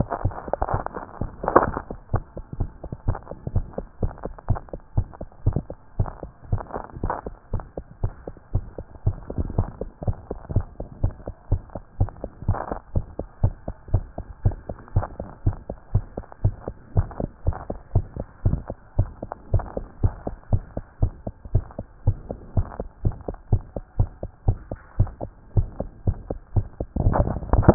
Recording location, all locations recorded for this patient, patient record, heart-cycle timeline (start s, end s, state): tricuspid valve (TV)
aortic valve (AV)+pulmonary valve (PV)+tricuspid valve (TV)+mitral valve (MV)
#Age: Child
#Sex: Female
#Height: 104.0 cm
#Weight: 15.1 kg
#Pregnancy status: False
#Murmur: Present
#Murmur locations: aortic valve (AV)+mitral valve (MV)+pulmonary valve (PV)
#Most audible location: pulmonary valve (PV)
#Systolic murmur timing: Early-systolic
#Systolic murmur shape: Plateau
#Systolic murmur grading: II/VI
#Systolic murmur pitch: Low
#Systolic murmur quality: Blowing
#Diastolic murmur timing: nan
#Diastolic murmur shape: nan
#Diastolic murmur grading: nan
#Diastolic murmur pitch: nan
#Diastolic murmur quality: nan
#Outcome: Abnormal
#Campaign: 2014 screening campaign
0.06	0.22	systole
0.22	0.34	S2
0.34	0.72	diastole
0.72	0.82	S1
0.82	0.98	systole
0.98	1.04	S2
1.04	1.22	diastole
1.22	1.30	S1
1.30	1.44	systole
1.44	1.52	S2
1.52	1.64	diastole
1.64	1.82	S1
1.82	1.90	systole
1.90	1.92	S2
1.92	2.12	diastole
2.12	2.24	S1
2.24	2.36	systole
2.36	2.44	S2
2.44	2.58	diastole
2.58	2.70	S1
2.70	2.82	systole
2.82	2.90	S2
2.90	3.06	diastole
3.06	3.18	S1
3.18	3.28	systole
3.28	3.36	S2
3.36	3.54	diastole
3.54	3.66	S1
3.66	3.78	systole
3.78	3.86	S2
3.86	4.02	diastole
4.02	4.12	S1
4.12	4.24	systole
4.24	4.32	S2
4.32	4.48	diastole
4.48	4.60	S1
4.60	4.72	systole
4.72	4.80	S2
4.80	4.96	diastole
4.96	5.08	S1
5.08	5.20	systole
5.20	5.28	S2
5.28	5.46	diastole
5.46	5.60	S1
5.60	5.70	systole
5.70	5.78	S2
5.78	5.98	diastole
5.98	6.10	S1
6.10	6.22	systole
6.22	6.30	S2
6.30	6.50	diastole
6.50	6.62	S1
6.62	6.74	systole
6.74	6.84	S2
6.84	7.02	diastole
7.02	7.14	S1
7.14	7.26	systole
7.26	7.34	S2
7.34	7.52	diastole
7.52	7.64	S1
7.64	7.76	systole
7.76	7.84	S2
7.84	8.02	diastole
8.02	8.12	S1
8.12	8.26	systole
8.26	8.34	S2
8.34	8.54	diastole
8.54	8.64	S1
8.64	8.76	systole
8.76	8.86	S2
8.86	9.06	diastole
9.06	9.16	S1
9.16	9.34	systole
9.34	9.46	S2
9.46	9.58	diastole
9.58	9.68	S1
9.68	9.80	systole
9.80	9.90	S2
9.90	10.06	diastole
10.06	10.16	S1
10.16	10.28	systole
10.28	10.38	S2
10.38	10.54	diastole
10.54	10.66	S1
10.66	10.78	systole
10.78	10.86	S2
10.86	11.02	diastole
11.02	11.14	S1
11.14	11.26	systole
11.26	11.34	S2
11.34	11.50	diastole
11.50	11.62	S1
11.62	11.74	systole
11.74	11.82	S2
11.82	12.00	diastole
12.00	12.10	S1
12.10	12.22	systole
12.22	12.30	S2
12.30	12.46	diastole
12.46	12.58	S1
12.58	12.70	systole
12.70	12.78	S2
12.78	12.94	diastole
12.94	13.06	S1
13.06	13.18	systole
13.18	13.26	S2
13.26	13.42	diastole
13.42	13.54	S1
13.54	13.66	systole
13.66	13.74	S2
13.74	13.92	diastole
13.92	14.04	S1
14.04	14.18	systole
14.18	14.26	S2
14.26	14.44	diastole
14.44	14.56	S1
14.56	14.68	systole
14.68	14.76	S2
14.76	14.94	diastole
14.94	15.06	S1
15.06	15.18	systole
15.18	15.28	S2
15.28	15.44	diastole
15.44	15.56	S1
15.56	15.68	systole
15.68	15.76	S2
15.76	15.94	diastole
15.94	16.04	S1
16.04	16.16	systole
16.16	16.24	S2
16.24	16.44	diastole
16.44	16.54	S1
16.54	16.66	systole
16.66	16.74	S2
16.74	16.96	diastole
16.96	17.08	S1
17.08	17.20	systole
17.20	17.30	S2
17.30	17.46	diastole
17.46	17.58	S1
17.58	17.68	systole
17.68	17.78	S2
17.78	17.94	diastole
17.94	18.06	S1
18.06	18.18	systole
18.18	18.26	S2
18.26	18.44	diastole
18.44	18.60	S1
18.60	18.70	systole
18.70	18.78	S2
18.78	18.98	diastole
18.98	19.10	S1
19.10	19.20	systole
19.20	19.30	S2
19.30	19.52	diastole
19.52	19.64	S1
19.64	19.76	systole
19.76	19.86	S2
19.86	20.02	diastole
20.02	20.14	S1
20.14	20.26	systole
20.26	20.34	S2
20.34	20.52	diastole
20.52	20.62	S1
20.62	20.76	systole
20.76	20.84	S2
20.84	21.00	diastole
21.00	21.12	S1
21.12	21.26	systole
21.26	21.34	S2
21.34	21.52	diastole
21.52	21.64	S1
21.64	21.78	systole
21.78	21.86	S2
21.86	22.06	diastole
22.06	22.18	S1
22.18	22.30	systole
22.30	22.38	S2
22.38	22.56	diastole
22.56	22.68	S1
22.68	22.78	systole
22.78	22.88	S2
22.88	23.04	diastole
23.04	23.16	S1
23.16	23.28	systole
23.28	23.36	S2
23.36	23.52	diastole
23.52	23.62	S1
23.62	23.74	systole
23.74	23.82	S2
23.82	23.98	diastole
23.98	24.10	S1
24.10	24.22	systole
24.22	24.30	S2
24.30	24.46	diastole
24.46	24.58	S1
24.58	24.70	systole
24.70	24.78	S2
24.78	24.98	diastole
24.98	25.10	S1
25.10	25.22	systole
25.22	25.30	S2
25.30	25.56	diastole
25.56	25.68	S1
25.68	25.80	systole
25.80	25.90	S2
25.90	26.06	diastole
26.06	26.18	S1
26.18	26.28	systole
26.28	26.40	S2
26.40	26.56	diastole
26.56	26.66	S1
26.66	26.80	systole
26.80	26.86	S2
26.86	27.02	diastole
27.02	27.16	S1
27.16	27.20	systole
27.20	27.32	S2
27.32	27.52	diastole
27.52	27.74	S1